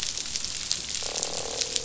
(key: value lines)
label: biophony, croak
recorder: SoundTrap 500